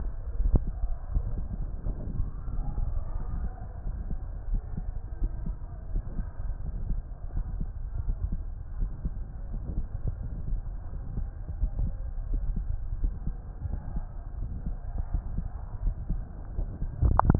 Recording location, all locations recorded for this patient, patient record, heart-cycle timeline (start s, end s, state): pulmonary valve (PV)
pulmonary valve (PV)
#Age: Adolescent
#Sex: Female
#Height: 158.0 cm
#Weight: 49.1 kg
#Pregnancy status: False
#Murmur: Absent
#Murmur locations: nan
#Most audible location: nan
#Systolic murmur timing: nan
#Systolic murmur shape: nan
#Systolic murmur grading: nan
#Systolic murmur pitch: nan
#Systolic murmur quality: nan
#Diastolic murmur timing: nan
#Diastolic murmur shape: nan
#Diastolic murmur grading: nan
#Diastolic murmur pitch: nan
#Diastolic murmur quality: nan
#Outcome: Abnormal
#Campaign: 2015 screening campaign
0.00	3.52	unannotated
3.52	3.84	diastole
3.84	3.95	S1
3.95	4.06	systole
4.06	4.19	S2
4.19	4.48	diastole
4.48	4.62	S1
4.62	4.74	systole
4.74	4.86	S2
4.86	5.16	diastole
5.16	5.30	S1
5.30	5.42	systole
5.42	5.54	S2
5.54	5.88	diastole
5.88	6.02	S1
6.02	6.14	systole
6.14	6.28	S2
6.28	6.66	diastole
6.66	6.80	S1
6.80	6.88	systole
6.88	7.02	S2
7.02	7.36	diastole
7.36	7.48	S1
7.48	7.58	systole
7.58	7.68	S2
7.68	8.06	diastole
8.06	8.18	S1
8.18	8.24	systole
8.24	8.38	S2
8.38	8.76	diastole
8.76	8.90	S1
8.90	9.02	systole
9.02	9.12	S2
9.12	9.52	diastole
9.52	9.64	S1
9.64	9.76	systole
9.76	9.86	S2
9.86	10.22	diastole
10.22	10.34	S1
10.34	10.48	systole
10.48	10.62	S2
10.62	10.94	diastole
10.94	11.04	S1
11.04	11.16	systole
11.16	11.28	S2
11.28	11.58	diastole
11.58	11.70	S1
11.70	11.80	systole
11.80	11.94	S2
11.94	12.28	diastole
12.28	12.44	S1
12.44	12.56	systole
12.56	12.68	S2
12.68	13.02	diastole
13.02	13.14	S1
13.14	13.26	systole
13.26	13.34	S2
13.34	13.64	diastole
13.64	13.78	S1
13.78	13.94	systole
13.94	14.06	S2
14.06	14.40	diastole
14.40	14.54	S1
14.54	14.66	systole
14.66	14.78	S2
14.78	15.12	diastole
15.12	15.24	S1
15.24	15.36	systole
15.36	15.46	S2
15.46	15.82	diastole
15.82	15.94	S1
15.94	16.08	systole
16.08	16.22	S2
16.22	16.56	diastole
16.56	17.39	unannotated